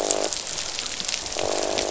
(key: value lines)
label: biophony, croak
recorder: SoundTrap 500